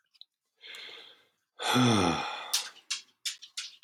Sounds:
Sigh